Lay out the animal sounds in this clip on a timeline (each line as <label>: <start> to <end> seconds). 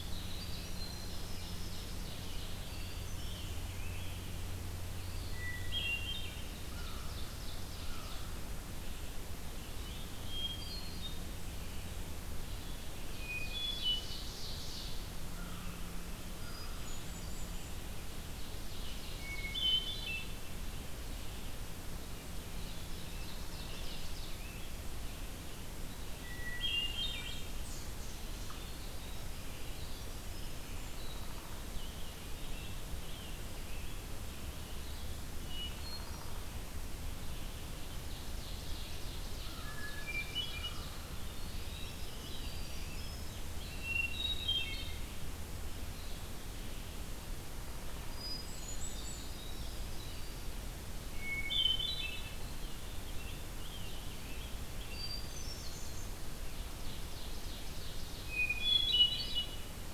Winter Wren (Troglodytes hiemalis): 0.0 to 2.2 seconds
Red-eyed Vireo (Vireo olivaceus): 0.0 to 5.4 seconds
Ovenbird (Seiurus aurocapilla): 0.7 to 3.0 seconds
Scarlet Tanager (Piranga olivacea): 2.1 to 4.3 seconds
Hermit Thrush (Catharus guttatus): 2.6 to 3.9 seconds
Eastern Wood-Pewee (Contopus virens): 4.8 to 5.8 seconds
Hermit Thrush (Catharus guttatus): 5.3 to 6.6 seconds
Ovenbird (Seiurus aurocapilla): 6.4 to 8.5 seconds
American Crow (Corvus brachyrhynchos): 6.6 to 8.3 seconds
Red-eyed Vireo (Vireo olivaceus): 8.6 to 59.9 seconds
Hermit Thrush (Catharus guttatus): 10.1 to 11.5 seconds
Ovenbird (Seiurus aurocapilla): 13.0 to 15.0 seconds
Hermit Thrush (Catharus guttatus): 13.2 to 14.3 seconds
American Crow (Corvus brachyrhynchos): 15.3 to 16.9 seconds
Hermit Thrush (Catharus guttatus): 16.3 to 17.8 seconds
Ovenbird (Seiurus aurocapilla): 18.2 to 20.3 seconds
Hermit Thrush (Catharus guttatus): 19.2 to 20.5 seconds
Ovenbird (Seiurus aurocapilla): 22.6 to 24.4 seconds
Scarlet Tanager (Piranga olivacea): 22.7 to 24.7 seconds
Hermit Thrush (Catharus guttatus): 26.1 to 27.5 seconds
Winter Wren (Troglodytes hiemalis): 27.8 to 31.5 seconds
Scarlet Tanager (Piranga olivacea): 31.2 to 34.2 seconds
Hermit Thrush (Catharus guttatus): 35.3 to 36.3 seconds
Ovenbird (Seiurus aurocapilla): 37.8 to 41.0 seconds
Hermit Thrush (Catharus guttatus): 39.4 to 41.2 seconds
Scarlet Tanager (Piranga olivacea): 40.8 to 43.5 seconds
Winter Wren (Troglodytes hiemalis): 41.1 to 43.7 seconds
Hermit Thrush (Catharus guttatus): 43.6 to 45.3 seconds
Hermit Thrush (Catharus guttatus): 47.9 to 49.3 seconds
Winter Wren (Troglodytes hiemalis): 48.2 to 50.6 seconds
Hermit Thrush (Catharus guttatus): 51.0 to 52.4 seconds
Scarlet Tanager (Piranga olivacea): 52.5 to 55.2 seconds
Hermit Thrush (Catharus guttatus): 54.9 to 56.4 seconds
Ovenbird (Seiurus aurocapilla): 56.3 to 58.8 seconds
Hermit Thrush (Catharus guttatus): 58.1 to 59.8 seconds